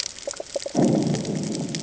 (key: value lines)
label: anthrophony, bomb
recorder: HydroMoth